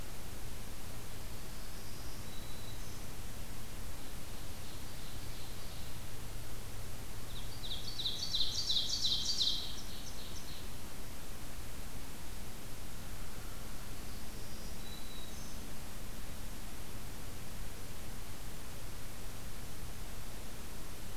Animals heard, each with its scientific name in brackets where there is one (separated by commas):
Ovenbird (Seiurus aurocapilla), Black-throated Green Warbler (Setophaga virens), American Crow (Corvus brachyrhynchos)